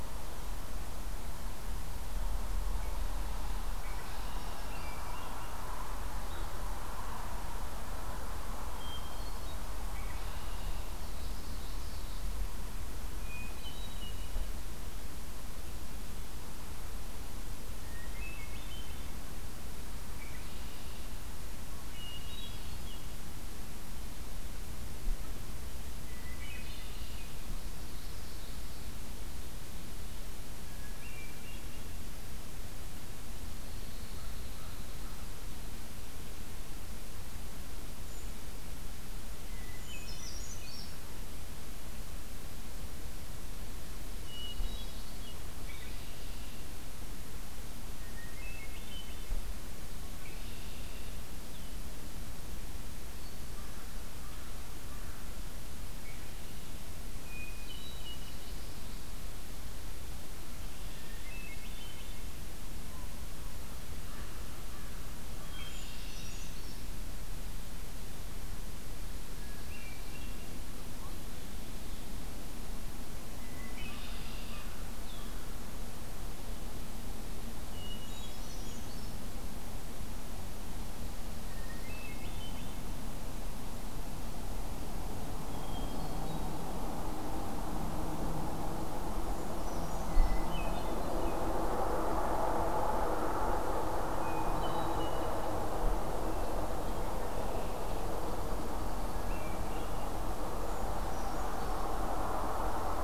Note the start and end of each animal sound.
3.8s-4.7s: Red-winged Blackbird (Agelaius phoeniceus)
4.3s-5.5s: Hermit Thrush (Catharus guttatus)
8.6s-9.6s: Hermit Thrush (Catharus guttatus)
9.8s-10.9s: Red-winged Blackbird (Agelaius phoeniceus)
10.8s-12.3s: Common Yellowthroat (Geothlypis trichas)
13.2s-14.4s: Hermit Thrush (Catharus guttatus)
17.9s-19.2s: Hermit Thrush (Catharus guttatus)
20.1s-21.2s: Red-winged Blackbird (Agelaius phoeniceus)
22.0s-23.1s: Hermit Thrush (Catharus guttatus)
26.1s-27.2s: Hermit Thrush (Catharus guttatus)
26.3s-27.3s: Red-winged Blackbird (Agelaius phoeniceus)
27.4s-29.2s: Common Yellowthroat (Geothlypis trichas)
30.7s-32.0s: Hermit Thrush (Catharus guttatus)
33.5s-35.2s: Red-winged Blackbird (Agelaius phoeniceus)
38.0s-38.4s: Brown Creeper (Certhia americana)
39.5s-40.4s: Hermit Thrush (Catharus guttatus)
39.7s-41.0s: Brown Creeper (Certhia americana)
44.2s-45.2s: Hermit Thrush (Catharus guttatus)
45.6s-46.6s: Red-winged Blackbird (Agelaius phoeniceus)
48.0s-49.3s: Hermit Thrush (Catharus guttatus)
50.0s-51.3s: Red-winged Blackbird (Agelaius phoeniceus)
53.5s-55.3s: American Crow (Corvus brachyrhynchos)
56.0s-56.7s: Red-winged Blackbird (Agelaius phoeniceus)
57.2s-58.5s: Hermit Thrush (Catharus guttatus)
57.6s-59.1s: Common Yellowthroat (Geothlypis trichas)
60.4s-61.3s: Red-winged Blackbird (Agelaius phoeniceus)
61.0s-62.4s: Hermit Thrush (Catharus guttatus)
65.4s-66.5s: Red-winged Blackbird (Agelaius phoeniceus)
65.4s-66.3s: Hermit Thrush (Catharus guttatus)
65.7s-66.9s: Brown Creeper (Certhia americana)
69.4s-70.5s: Hermit Thrush (Catharus guttatus)
73.3s-74.4s: Hermit Thrush (Catharus guttatus)
73.4s-74.7s: Red-winged Blackbird (Agelaius phoeniceus)
75.0s-75.5s: Red-winged Blackbird (Agelaius phoeniceus)
77.6s-78.8s: Hermit Thrush (Catharus guttatus)
77.9s-79.4s: Brown Creeper (Certhia americana)
81.4s-82.8s: Hermit Thrush (Catharus guttatus)
85.4s-86.6s: Hermit Thrush (Catharus guttatus)
89.0s-90.5s: Brown Creeper (Certhia americana)
90.1s-91.5s: Hermit Thrush (Catharus guttatus)
94.0s-95.5s: Hermit Thrush (Catharus guttatus)
97.1s-99.4s: Red-winged Blackbird (Agelaius phoeniceus)
99.1s-100.3s: Hermit Thrush (Catharus guttatus)
100.4s-101.9s: Brown Creeper (Certhia americana)

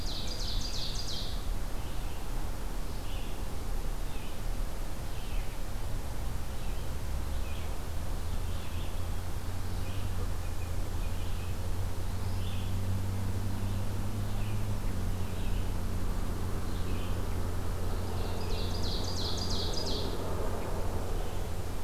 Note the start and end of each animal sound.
0.0s-1.6s: Ovenbird (Seiurus aurocapilla)
0.0s-21.8s: Red-eyed Vireo (Vireo olivaceus)
10.4s-11.6s: Blue Jay (Cyanocitta cristata)
18.0s-20.2s: Ovenbird (Seiurus aurocapilla)

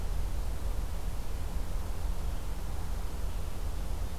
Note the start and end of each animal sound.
3.0s-4.2s: Purple Finch (Haemorhous purpureus)

